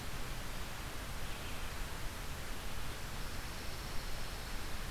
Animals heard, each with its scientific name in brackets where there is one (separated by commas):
Pine Warbler (Setophaga pinus)